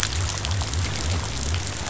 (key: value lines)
label: biophony
recorder: SoundTrap 500